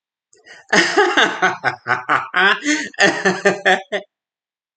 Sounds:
Laughter